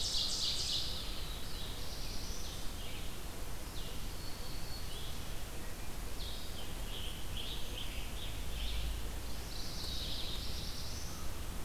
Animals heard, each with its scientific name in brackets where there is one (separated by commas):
Red-eyed Vireo (Vireo olivaceus), Ovenbird (Seiurus aurocapilla), Black-throated Green Warbler (Setophaga virens), Black-throated Blue Warbler (Setophaga caerulescens), Scarlet Tanager (Piranga olivacea)